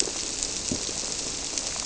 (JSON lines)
{"label": "biophony", "recorder": "SoundTrap 300"}